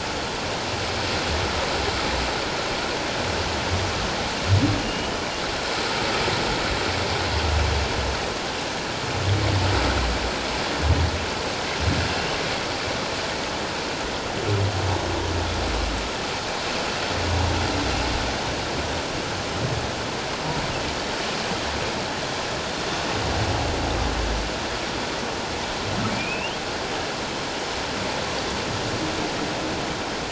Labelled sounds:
4.8	5.1	humpback whale, 2.8 to 2.9 kHz
26.1	26.6	humpback whale, 2.1 to 3.3 kHz

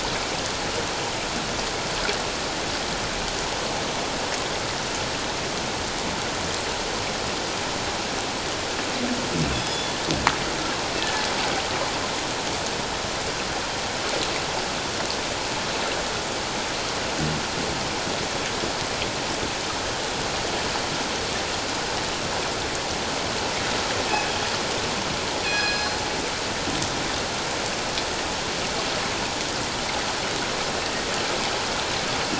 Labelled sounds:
9.5	9.9	killer whale, northern resident, G clan, 3.3 to 5.2 kHz
25.4	26.0	killer whale, northern resident, G clan, 1.5 to 5.2 kHz

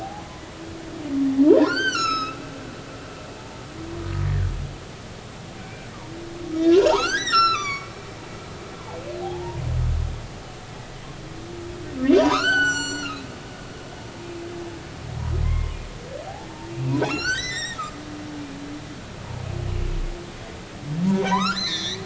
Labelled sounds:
0.0	0.3	humpback whale, 0.80 to 0.90 kHz
1.5	2.4	humpback whale, 0.80 to 8.0 kHz
4.2	4.5	humpback whale, 1.4 to 1.9 kHz
5.6	7.9	humpback whale, 0.80 to 8.0 kHz
9.2	9.6	humpback whale, 0.80 to 1.0 kHz
12.2	13.3	humpback whale, 0.90 to 7.7 kHz
15.4	15.8	humpback whale, 0.99 to 2.2 kHz
16.8	17.8	humpback whale, 0.93 to 8.0 kHz
21.2	22.0	humpback whale, 0.80 to 6.1 kHz

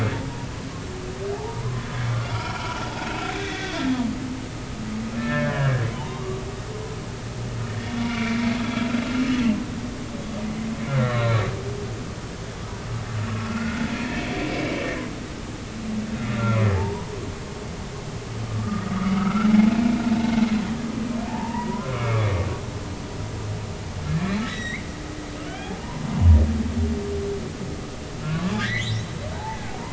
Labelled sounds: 1.3	3.7	humpback whale, 0.80 to 3.7 kHz
5.2	6.4	humpback whale, 0.80 to 2.6 kHz
7.7	8.4	humpback whale, 1.3 to 3.6 kHz
10.9	11.4	humpback whale, 1.0 to 4.1 kHz
13.4	14.7	humpback whale, 1.3 to 2.4 kHz
16.8	17.3	humpback whale, 0.80 to 1.2 kHz
18.5	20.0	humpback whale, 1.1 to 2.4 kHz
21.3	22.3	humpback whale, 0.83 to 2.5 kHz
24.1	24.8	humpback whale, 1.6 to 4.0 kHz
25.4	26.1	humpback whale, 0.90 to 3.4 kHz
28.2	29.1	humpback whale, 1.0 to 3.7 kHz
29.3	29.6	humpback whale, 0.80 to 1.0 kHz

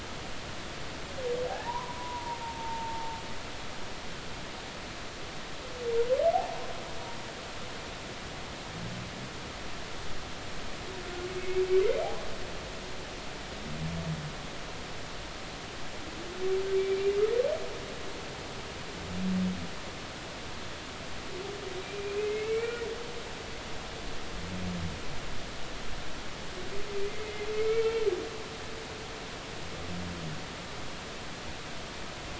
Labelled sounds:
1.5	2.4	humpback whale, 0.80 to 1.1 kHz
3.4	4.2	humpback whale, 0.86 to 0.96 kHz
11.4	11.6	humpback whale, 2.0 to 2.3 kHz
16.8	17.1	humpback whale, 2.2 to 2.5 kHz
21.8	22.8	humpback whale, 2.0 to 2.5 kHz
27.1	27.8	humpback whale, 2.0 to 2.3 kHz

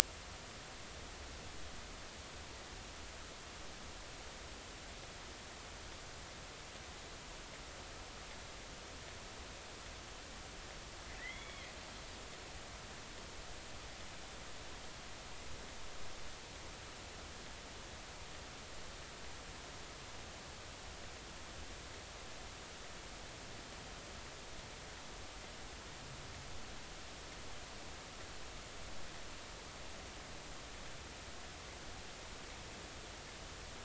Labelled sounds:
11.2	11.7	killer whale, 1.8 to 3.4 kHz

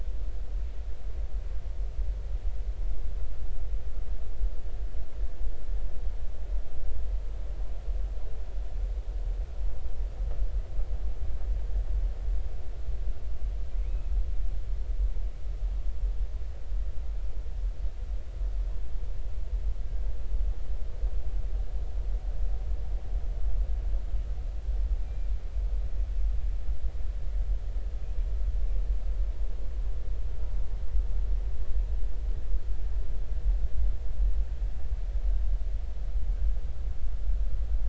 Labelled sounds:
13.8	14.1	killer whale, northern resident, 2.1 to 2.6 kHz
25.0	25.3	killer whale, northern resident, 2.3 to 2.4 kHz

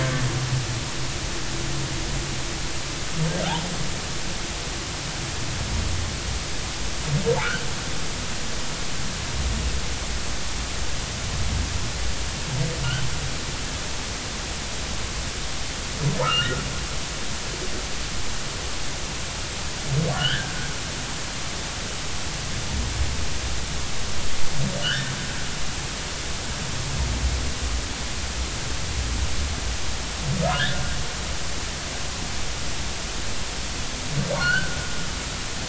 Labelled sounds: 12.8	13.1	humpback whale, 2.8 to 3.2 kHz
16.2	16.6	humpback whale, 1.2 to 3.1 kHz
20.1	20.5	humpback whale, 1.3 to 3.5 kHz
24.8	25.1	humpback whale, 1.3 to 1.9 kHz
30.4	30.7	humpback whale, 1.2 to 1.5 kHz
34.4	34.8	humpback whale, 1.3 to 3.2 kHz

